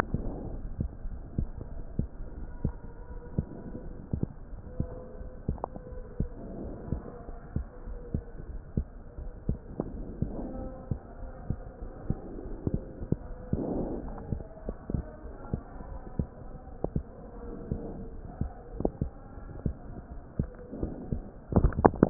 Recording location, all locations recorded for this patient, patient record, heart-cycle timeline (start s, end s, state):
aortic valve (AV)
aortic valve (AV)+pulmonary valve (PV)+tricuspid valve (TV)+mitral valve (MV)
#Age: Child
#Sex: Male
#Height: 126.0 cm
#Weight: 25.9 kg
#Pregnancy status: False
#Murmur: Absent
#Murmur locations: nan
#Most audible location: nan
#Systolic murmur timing: nan
#Systolic murmur shape: nan
#Systolic murmur grading: nan
#Systolic murmur pitch: nan
#Systolic murmur quality: nan
#Diastolic murmur timing: nan
#Diastolic murmur shape: nan
#Diastolic murmur grading: nan
#Diastolic murmur pitch: nan
#Diastolic murmur quality: nan
#Outcome: Normal
#Campaign: 2015 screening campaign
0.00	2.74	unannotated
2.74	3.10	diastole
3.10	3.22	S1
3.22	3.34	systole
3.34	3.46	S2
3.46	3.84	diastole
3.84	3.96	S1
3.96	4.12	systole
4.12	4.24	S2
4.24	4.52	diastole
4.52	4.62	S1
4.62	4.78	systole
4.78	4.88	S2
4.88	5.20	diastole
5.20	5.30	S1
5.30	5.46	systole
5.46	5.60	S2
5.60	5.96	diastole
5.96	6.04	S1
6.04	6.18	systole
6.18	6.30	S2
6.30	6.62	diastole
6.62	6.76	S1
6.76	6.90	systole
6.90	7.06	S2
7.06	7.28	diastole
7.28	7.40	S1
7.40	7.53	systole
7.53	7.65	S2
7.65	7.86	diastole
7.86	8.00	S1
8.00	8.13	systole
8.13	8.23	S2
8.23	8.44	diastole
8.44	8.60	S1
8.60	8.74	systole
8.74	8.88	S2
8.88	9.18	diastole
9.18	9.32	S1
9.32	9.46	systole
9.46	9.60	S2
9.60	9.92	diastole
9.92	10.06	S1
10.06	10.20	systole
10.20	10.34	S2
10.34	10.58	diastole
10.58	10.76	S1
10.76	10.90	systole
10.90	11.00	S2
11.00	11.22	diastole
11.22	11.36	S1
11.36	11.48	systole
11.48	11.62	S2
11.62	11.80	diastole
11.80	22.10	unannotated